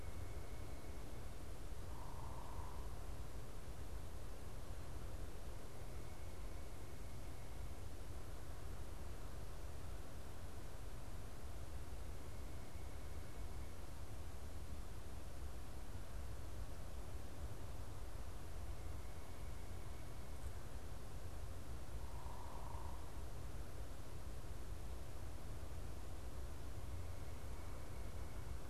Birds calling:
unidentified bird

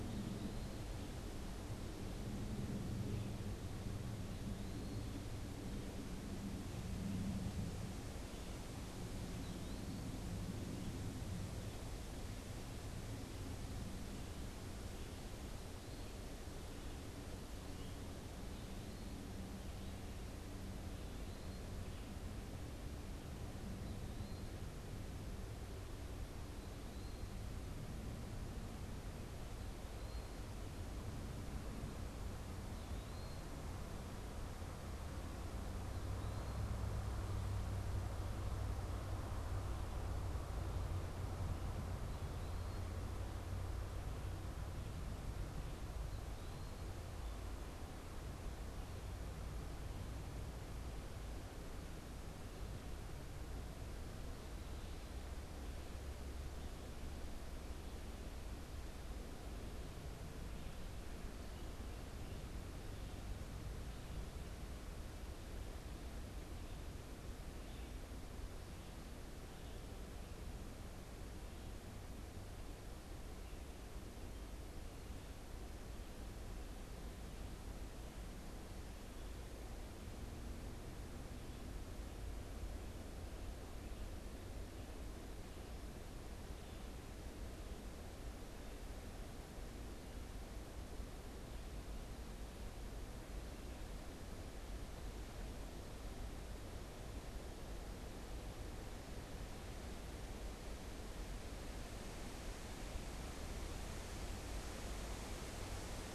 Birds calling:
Eastern Wood-Pewee (Contopus virens)

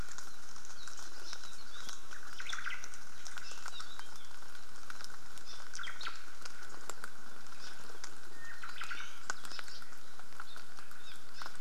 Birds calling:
Apapane (Himatione sanguinea)
Iiwi (Drepanis coccinea)
Omao (Myadestes obscurus)

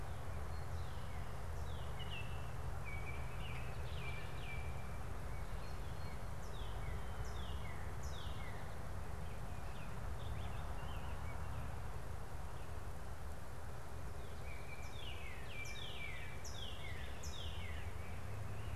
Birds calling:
Baltimore Oriole (Icterus galbula)
Northern Cardinal (Cardinalis cardinalis)
Rose-breasted Grosbeak (Pheucticus ludovicianus)

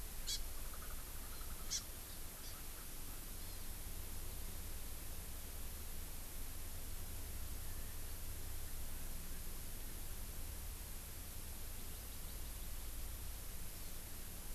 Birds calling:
Hawaii Amakihi (Chlorodrepanis virens)

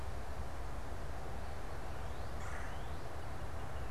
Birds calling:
Red-bellied Woodpecker (Melanerpes carolinus)
Northern Cardinal (Cardinalis cardinalis)

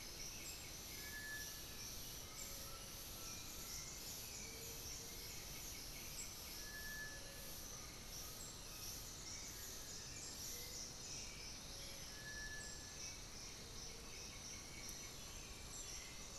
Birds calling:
Cinereous Tinamou (Crypturellus cinereus)
Little Tinamou (Crypturellus soui)
Black-billed Thrush (Turdus ignobilis)
White-winged Becard (Pachyramphus polychopterus)
Undulated Tinamou (Crypturellus undulatus)

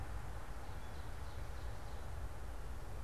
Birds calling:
Ovenbird (Seiurus aurocapilla)

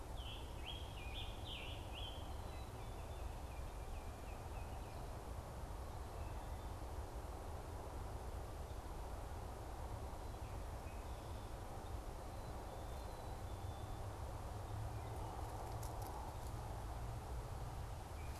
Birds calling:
Scarlet Tanager (Piranga olivacea)
Baltimore Oriole (Icterus galbula)

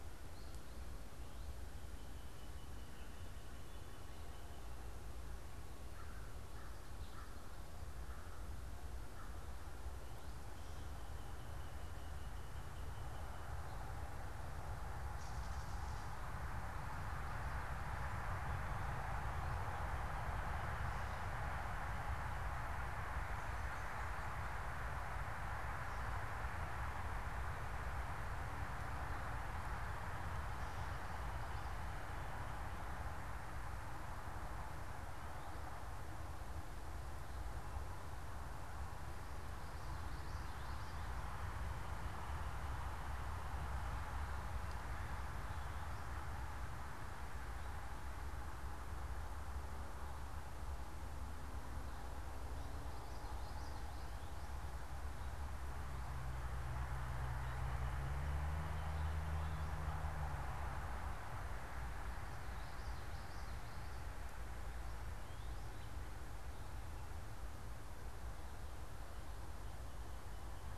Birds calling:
American Crow (Corvus brachyrhynchos)
unidentified bird
Gray Catbird (Dumetella carolinensis)
Northern Cardinal (Cardinalis cardinalis)
Common Yellowthroat (Geothlypis trichas)

